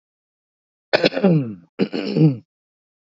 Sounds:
Throat clearing